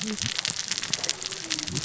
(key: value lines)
label: biophony, cascading saw
recorder: SoundTrap 600 or HydroMoth